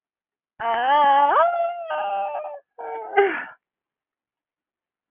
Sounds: Sigh